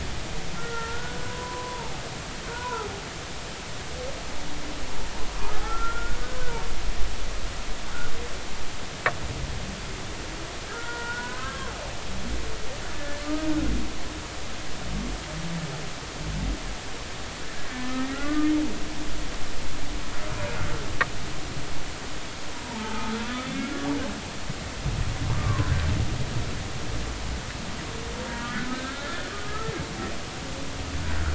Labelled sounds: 0.5	2.0	humpback whale, 0.80 to 1.9 kHz
2.5	2.9	humpback whale, 0.80 to 1.1 kHz
5.6	6.2	humpback whale, 1.2 to 1.5 kHz
10.7	11.7	humpback whale, 0.90 to 2.0 kHz
12.9	13.5	humpback whale, 1.1 to 1.8 kHz
17.9	18.5	humpback whale, 1.1 to 2.1 kHz
22.6	23.7	humpback whale, 0.83 to 2.2 kHz
25.3	25.7	humpback whale, 0.96 to 1.2 kHz
28.7	29.7	humpback whale, 1.2 to 1.8 kHz

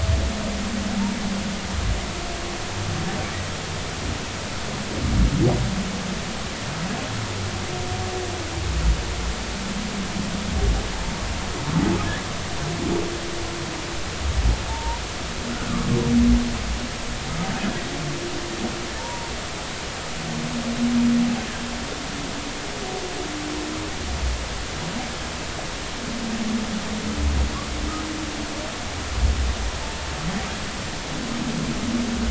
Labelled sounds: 14.7	15.0	humpback whale, 0.86 to 1.0 kHz
19.0	19.3	humpback whale, 0.86 to 1.0 kHz

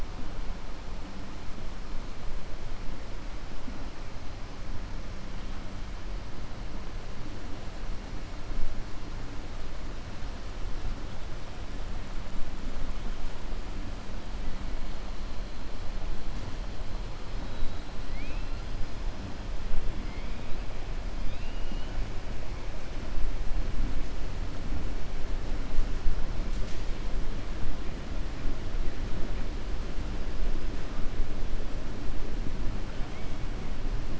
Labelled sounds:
17.3	17.8	killer whale, southern resident, 3.7 to 4.4 kHz
21.2	21.9	killer whale, southern resident, 2.4 to 4.2 kHz

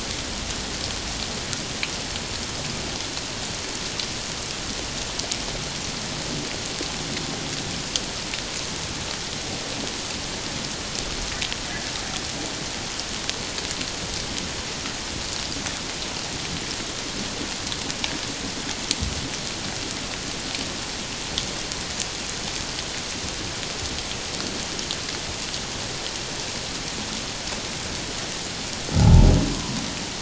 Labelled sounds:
29.0	29.3	humpback whale, 0.78 to 0.94 kHz

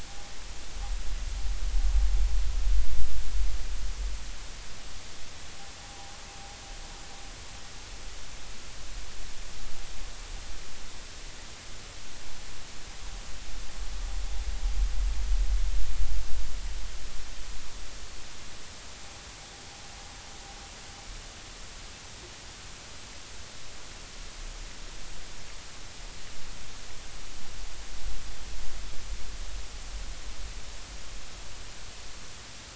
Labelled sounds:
5.8	6.1	vessel noise, 0.80 to 1.0 kHz

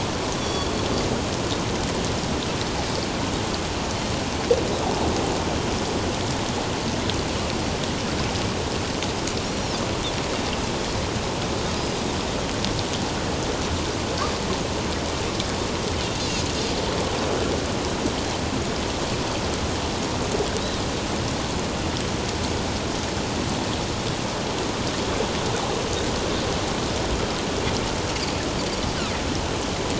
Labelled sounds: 0.4	0.7	Pacific white-sided dolphin, 3.3 to 4.7 kHz
9.4	9.8	Pacific white-sided dolphin, 5.2 to 5.8 kHz
11.7	12.0	Pacific white-sided dolphin, 4.9 to 5.1 kHz

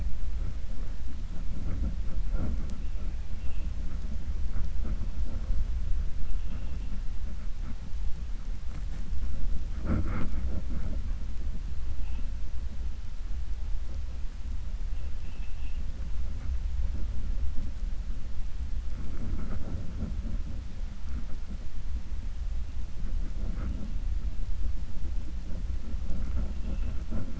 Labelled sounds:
15.1	15.8	vessel noise, 2.4 to 3.4 kHz

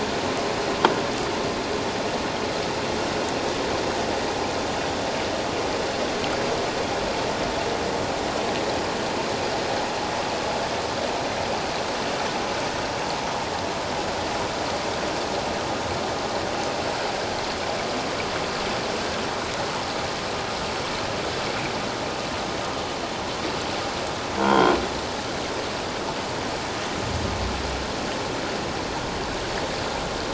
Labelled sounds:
24.4	24.8	croaking sound likely from a nearby submerged object, 0.91 to 3.3 kHz

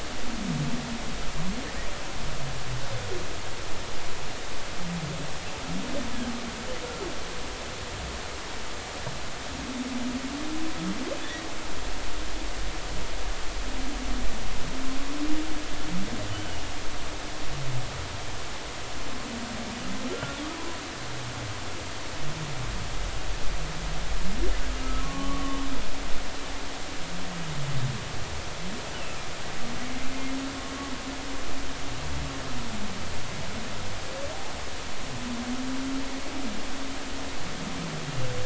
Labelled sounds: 16.3	16.6	humpback whale, 2.8 to 3.1 kHz
20.1	20.8	humpback whale, 0.96 to 1.5 kHz
25.0	25.6	humpback whale, 1.0 to 1.2 kHz

